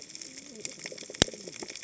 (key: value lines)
label: biophony, cascading saw
recorder: HydroMoth